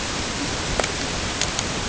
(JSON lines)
{"label": "ambient", "recorder": "HydroMoth"}